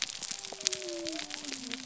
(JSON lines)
{"label": "biophony", "recorder": "SoundTrap 300"}